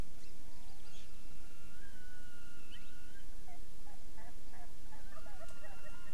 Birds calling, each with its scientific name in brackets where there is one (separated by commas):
Hawaii Amakihi (Chlorodrepanis virens), Erckel's Francolin (Pternistis erckelii), Wild Turkey (Meleagris gallopavo)